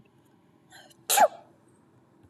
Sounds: Sneeze